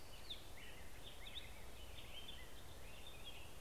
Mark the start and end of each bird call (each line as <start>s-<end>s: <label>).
0.0s-0.8s: Orange-crowned Warbler (Leiothlypis celata)
0.0s-3.6s: American Robin (Turdus migratorius)
0.0s-3.6s: Black-headed Grosbeak (Pheucticus melanocephalus)